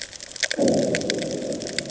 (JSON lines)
{"label": "anthrophony, bomb", "recorder": "HydroMoth"}